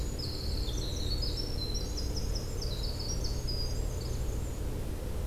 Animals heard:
Yellow-bellied Flycatcher (Empidonax flaviventris), Winter Wren (Troglodytes hiemalis), Black-and-white Warbler (Mniotilta varia)

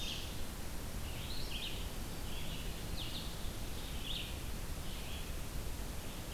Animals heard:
White-throated Sparrow (Zonotrichia albicollis), Red-eyed Vireo (Vireo olivaceus)

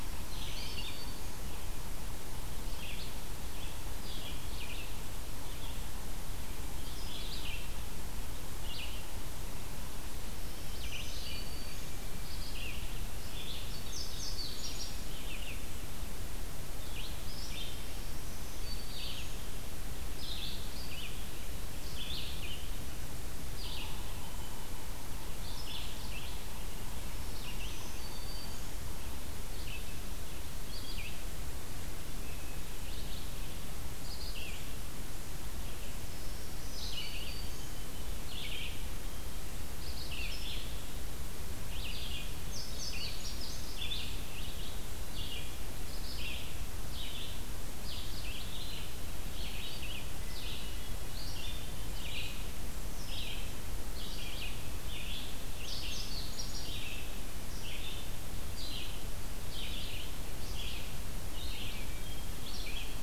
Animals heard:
Indigo Bunting (Passerina cyanea), Black-throated Green Warbler (Setophaga virens), Hermit Thrush (Catharus guttatus), Red-eyed Vireo (Vireo olivaceus)

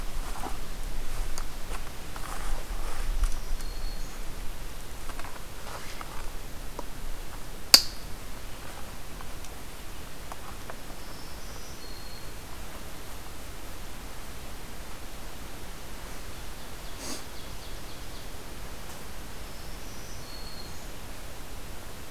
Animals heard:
Ovenbird (Seiurus aurocapilla), Black-throated Green Warbler (Setophaga virens)

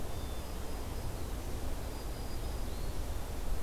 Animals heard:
Black-capped Chickadee (Poecile atricapillus), Black-throated Green Warbler (Setophaga virens)

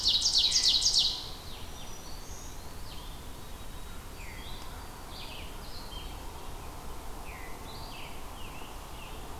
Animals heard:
Black-throated Green Warbler (Setophaga virens), Ovenbird (Seiurus aurocapilla), White-throated Sparrow (Zonotrichia albicollis), Red-eyed Vireo (Vireo olivaceus), Veery (Catharus fuscescens), Scarlet Tanager (Piranga olivacea)

